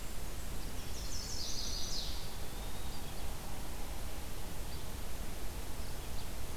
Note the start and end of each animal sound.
[0.00, 0.66] Blackburnian Warbler (Setophaga fusca)
[0.00, 6.56] Red-eyed Vireo (Vireo olivaceus)
[0.59, 2.50] Chestnut-sided Warbler (Setophaga pensylvanica)
[1.99, 3.48] Eastern Wood-Pewee (Contopus virens)

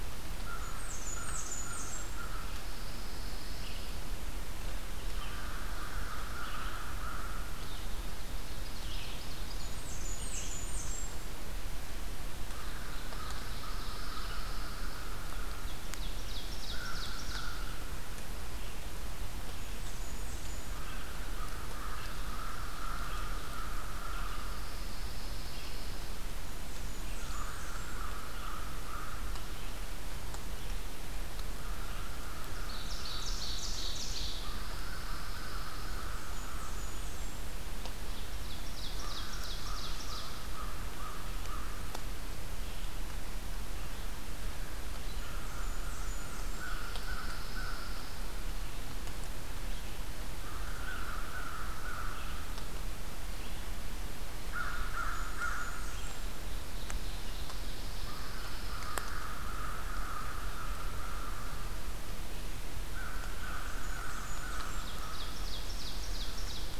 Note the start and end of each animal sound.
[0.25, 8.23] American Crow (Corvus brachyrhynchos)
[0.39, 2.39] Blackburnian Warbler (Setophaga fusca)
[2.64, 4.07] Pine Warbler (Setophaga pinus)
[3.54, 10.65] Red-eyed Vireo (Vireo olivaceus)
[7.73, 9.78] Ovenbird (Seiurus aurocapilla)
[9.30, 11.18] Blackburnian Warbler (Setophaga fusca)
[11.94, 15.81] American Crow (Corvus brachyrhynchos)
[12.29, 14.43] Ovenbird (Seiurus aurocapilla)
[13.28, 15.08] Pine Warbler (Setophaga pinus)
[15.46, 17.84] Ovenbird (Seiurus aurocapilla)
[16.61, 18.18] American Crow (Corvus brachyrhynchos)
[18.40, 56.28] Red-eyed Vireo (Vireo olivaceus)
[19.39, 20.89] Blackburnian Warbler (Setophaga fusca)
[20.60, 25.35] American Crow (Corvus brachyrhynchos)
[24.42, 26.34] Pine Warbler (Setophaga pinus)
[26.24, 28.07] Blackburnian Warbler (Setophaga fusca)
[26.97, 29.44] American Crow (Corvus brachyrhynchos)
[31.47, 33.58] American Crow (Corvus brachyrhynchos)
[32.32, 34.80] Ovenbird (Seiurus aurocapilla)
[34.27, 37.05] American Crow (Corvus brachyrhynchos)
[34.35, 36.16] Pine Warbler (Setophaga pinus)
[35.72, 37.66] Blackburnian Warbler (Setophaga fusca)
[38.14, 40.56] Ovenbird (Seiurus aurocapilla)
[38.97, 41.98] American Crow (Corvus brachyrhynchos)
[44.80, 46.86] Blackburnian Warbler (Setophaga fusca)
[45.10, 48.06] American Crow (Corvus brachyrhynchos)
[46.59, 48.31] Pine Warbler (Setophaga pinus)
[50.38, 52.78] American Crow (Corvus brachyrhynchos)
[54.45, 55.90] American Crow (Corvus brachyrhynchos)
[54.57, 56.59] Blackburnian Warbler (Setophaga fusca)
[56.20, 58.10] Ovenbird (Seiurus aurocapilla)
[57.60, 59.25] Pine Warbler (Setophaga pinus)
[57.72, 61.67] American Crow (Corvus brachyrhynchos)
[62.79, 65.50] American Crow (Corvus brachyrhynchos)
[63.42, 65.04] Blackburnian Warbler (Setophaga fusca)
[64.34, 66.79] Ovenbird (Seiurus aurocapilla)

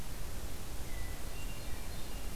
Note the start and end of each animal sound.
[0.73, 2.35] Hermit Thrush (Catharus guttatus)

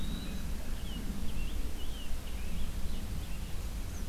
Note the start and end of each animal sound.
[0.00, 0.80] Eastern Wood-Pewee (Contopus virens)
[0.51, 3.25] Scarlet Tanager (Piranga olivacea)

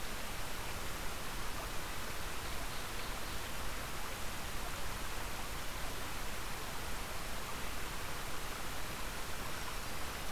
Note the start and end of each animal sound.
[1.95, 3.62] Ovenbird (Seiurus aurocapilla)
[9.28, 10.21] Black-throated Green Warbler (Setophaga virens)

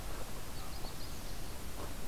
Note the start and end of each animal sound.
[0.45, 1.66] Magnolia Warbler (Setophaga magnolia)

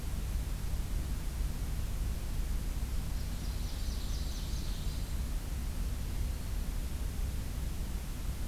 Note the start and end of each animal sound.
[2.85, 4.84] Blackburnian Warbler (Setophaga fusca)
[3.44, 4.99] Ovenbird (Seiurus aurocapilla)
[6.16, 6.80] Black-throated Green Warbler (Setophaga virens)

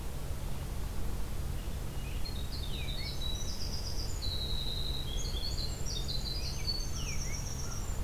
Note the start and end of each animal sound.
[1.40, 3.22] American Robin (Turdus migratorius)
[2.10, 8.03] Winter Wren (Troglodytes hiemalis)
[6.21, 7.46] American Robin (Turdus migratorius)
[6.79, 7.94] American Crow (Corvus brachyrhynchos)

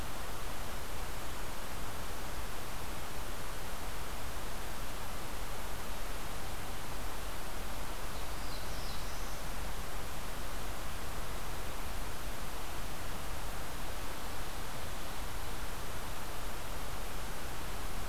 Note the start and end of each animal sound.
[7.95, 9.38] Black-throated Blue Warbler (Setophaga caerulescens)

